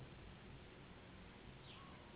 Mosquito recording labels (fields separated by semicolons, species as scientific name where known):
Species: Anopheles gambiae s.s.; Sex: female; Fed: unfed; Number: one; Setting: insect culture